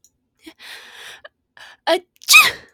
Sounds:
Sneeze